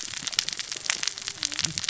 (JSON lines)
{"label": "biophony, cascading saw", "recorder": "SoundTrap 600 or HydroMoth"}